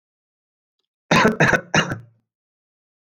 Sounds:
Cough